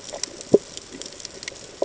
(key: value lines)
label: ambient
recorder: HydroMoth